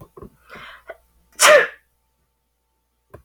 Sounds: Sneeze